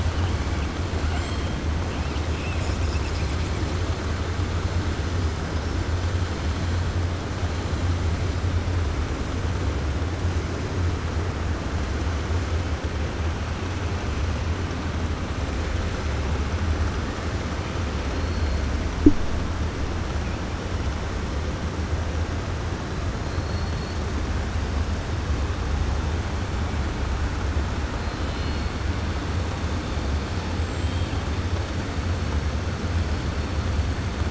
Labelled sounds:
23.2	24.0	killer whale, 4.0 to 4.5 kHz
28.0	28.7	killer whale, 2.2 to 5.1 kHz
30.8	31.1	killer whale, 2.6 to 3.9 kHz

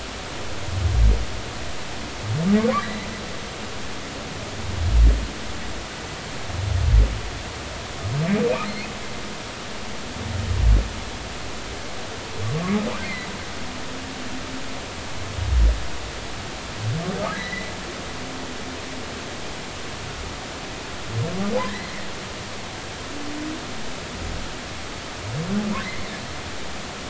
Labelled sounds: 2.8	3.1	humpback whale, 3.8 to 4.0 kHz
13.0	13.3	humpback whale, 1.9 to 2.2 kHz
17.3	17.7	humpback whale, 1.6 to 2.1 kHz
21.7	21.9	humpback whale, 1.7 to 2.1 kHz

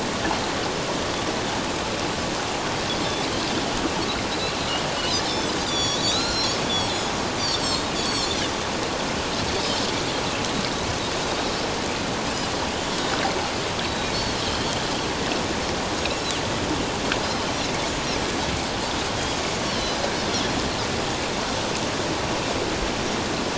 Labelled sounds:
5.2	6.5	Pacific white-sided dolphin, 1.2 to 7.2 kHz
7.4	8.3	Pacific white-sided dolphin, 3.7 to 7.9 kHz
13.8	14.7	Pacific white-sided dolphin, 3.0 to 4.5 kHz
19.7	20.0	Pacific white-sided dolphin, 3.9 to 4.5 kHz

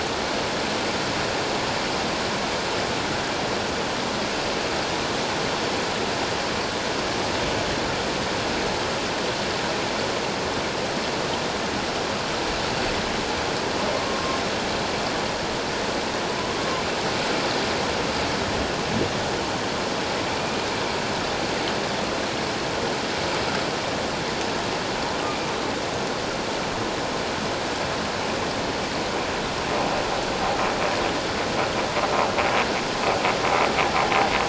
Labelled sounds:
13.9	14.4	humpback whale, 1.0 to 1.1 kHz

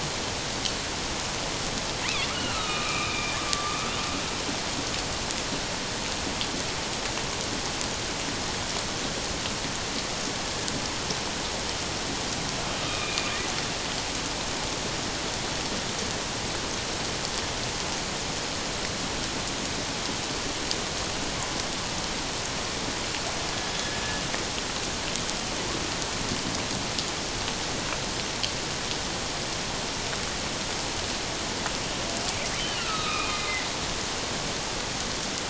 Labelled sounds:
2.3	3.9	killer whale, northern resident, A clan, AA subclan, 1.1 to 4.2 kHz
12.8	13.4	killer whale, northern resident, A clan, AA subclan, 1.2 to 2.6 kHz
32.6	33.7	killer whale, northern resident, A clan, AA subclan, 1.1 to 3.9 kHz

